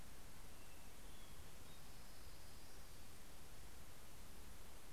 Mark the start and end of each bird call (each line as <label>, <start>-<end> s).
Hermit Thrush (Catharus guttatus), 0.0-2.5 s
Orange-crowned Warbler (Leiothlypis celata), 1.5-3.7 s